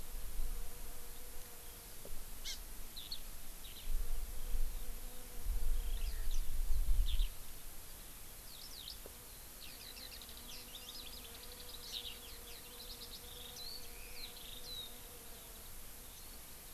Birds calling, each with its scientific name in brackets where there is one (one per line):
Eurasian Skylark (Alauda arvensis)
Hawaii Amakihi (Chlorodrepanis virens)
Warbling White-eye (Zosterops japonicus)